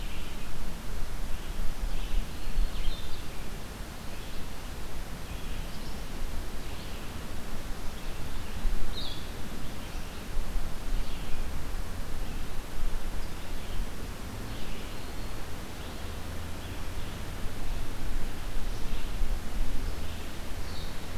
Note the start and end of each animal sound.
0.0s-21.2s: Red-eyed Vireo (Vireo olivaceus)
1.9s-3.0s: Black-throated Green Warbler (Setophaga virens)
2.6s-9.4s: Blue-headed Vireo (Vireo solitarius)
14.8s-15.5s: Black-throated Green Warbler (Setophaga virens)
20.6s-21.2s: Blue-headed Vireo (Vireo solitarius)

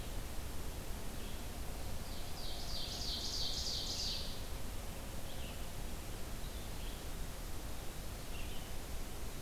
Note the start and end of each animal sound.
0.0s-1.5s: Red-eyed Vireo (Vireo olivaceus)
1.8s-4.6s: Ovenbird (Seiurus aurocapilla)
5.1s-9.4s: Red-eyed Vireo (Vireo olivaceus)

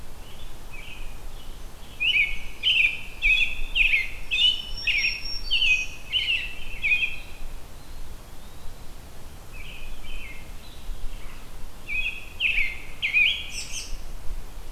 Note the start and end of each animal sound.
0.0s-7.4s: American Robin (Turdus migratorius)
4.4s-6.1s: Black-throated Green Warbler (Setophaga virens)
7.7s-8.9s: Eastern Wood-Pewee (Contopus virens)
9.3s-11.4s: American Robin (Turdus migratorius)
11.7s-13.9s: American Robin (Turdus migratorius)

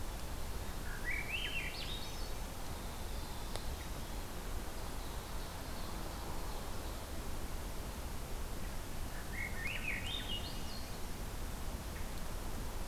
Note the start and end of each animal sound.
0.0s-4.3s: Winter Wren (Troglodytes hiemalis)
0.8s-2.3s: Swainson's Thrush (Catharus ustulatus)
4.8s-7.0s: Ovenbird (Seiurus aurocapilla)
9.1s-11.0s: Swainson's Thrush (Catharus ustulatus)

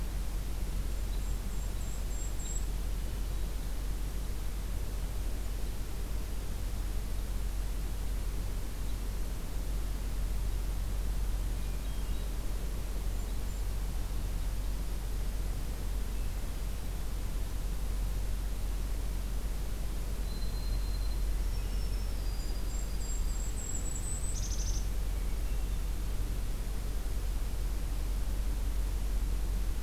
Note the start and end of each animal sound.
0.7s-2.8s: Golden-crowned Kinglet (Regulus satrapa)
2.9s-3.7s: Hermit Thrush (Catharus guttatus)
11.5s-12.4s: Hermit Thrush (Catharus guttatus)
13.1s-13.7s: Golden-crowned Kinglet (Regulus satrapa)
16.2s-17.0s: Hermit Thrush (Catharus guttatus)
20.2s-23.6s: White-throated Sparrow (Zonotrichia albicollis)
22.2s-24.9s: Golden-crowned Kinglet (Regulus satrapa)
25.0s-25.9s: Hermit Thrush (Catharus guttatus)

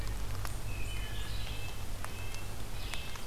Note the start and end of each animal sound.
0.5s-1.3s: Wood Thrush (Hylocichla mustelina)
1.3s-3.3s: Red-breasted Nuthatch (Sitta canadensis)

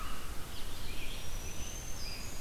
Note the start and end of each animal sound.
0.0s-2.4s: Red-eyed Vireo (Vireo olivaceus)
0.2s-2.3s: Scarlet Tanager (Piranga olivacea)
0.8s-2.4s: Black-throated Green Warbler (Setophaga virens)

